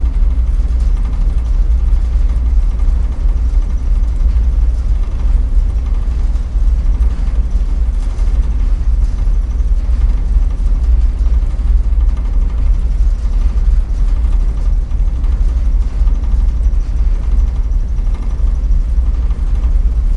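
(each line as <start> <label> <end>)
0.0 An engine runs quickly with an irregular pattern. 20.2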